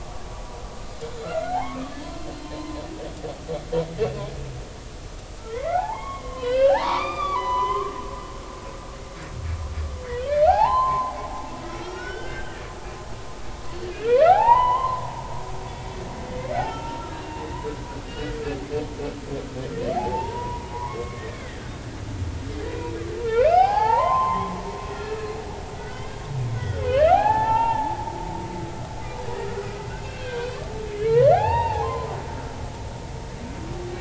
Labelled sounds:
1.2	2.8	humpback whale, 0.80 to 4.2 kHz
5.5	7.9	humpback whale, 0.80 to 4.9 kHz
10.0	11.1	humpback whale, 0.80 to 4.4 kHz
11.6	12.6	humpback whale, 1.2 to 3.2 kHz
13.8	15.0	humpback whale, 0.80 to 3.2 kHz
16.4	18.3	humpback whale, 0.86 to 5.5 kHz
19.9	21.6	humpback whale, 0.80 to 2.4 kHz
22.7	24.5	humpback whale, 0.80 to 5.3 kHz
24.9	28.0	humpback whale, 0.80 to 3.3 kHz
29.9	30.5	humpback whale, 1.4 to 3.3 kHz
31.1	32.2	humpback whale, 0.80 to 3.2 kHz

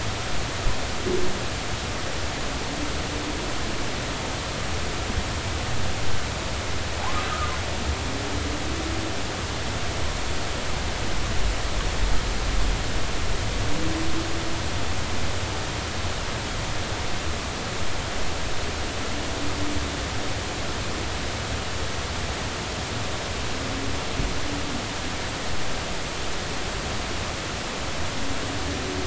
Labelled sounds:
7.3	7.5	humpback whale, 1.2 to 1.5 kHz

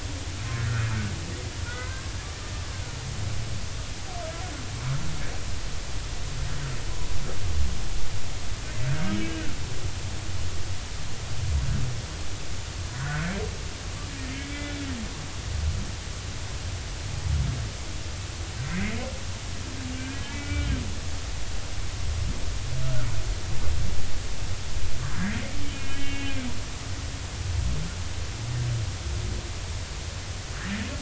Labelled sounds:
1.7	2.1	humpback whale, 0.99 to 2.1 kHz
9.2	9.5	humpback whale, 1.3 to 1.7 kHz
12.9	13.3	humpback whale, 1.3 to 1.7 kHz
14.5	14.9	humpback whale, 3.3 to 3.5 kHz
18.7	19.0	humpback whale, 1.8 to 2.2 kHz
19.9	20.7	humpback whale, 1.4 to 2.4 kHz
22.8	23.1	humpback whale, 1.2 to 1.6 kHz
25.0	26.5	humpback whale, 1.5 to 3.1 kHz

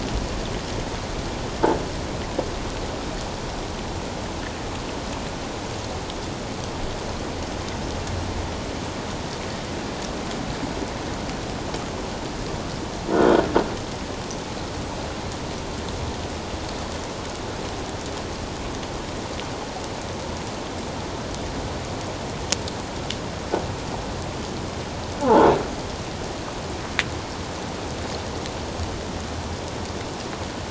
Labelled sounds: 13.2	13.5	croaking sound likely from a nearby submerged object, 3.1 to 3.3 kHz
25.2	25.5	croaking sound likely from a nearby submerged object, 0.78 to 1.1 kHz

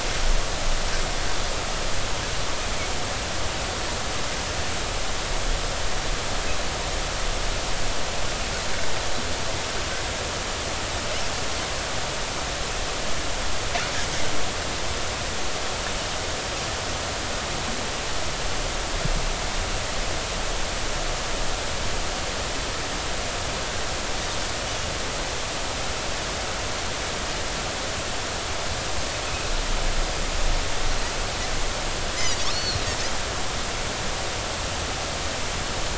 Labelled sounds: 32.2	32.8	Pacific white-sided dolphin, 4.1 to 5.2 kHz

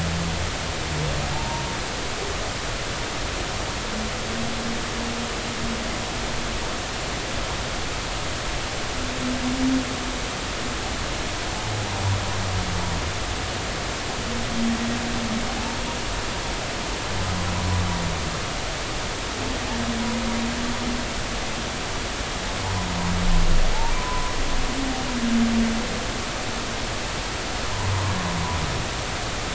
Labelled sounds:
1.3	1.6	humpback whale, 0.80 to 0.99 kHz
24.0	24.3	humpback whale, 0.96 to 1.1 kHz

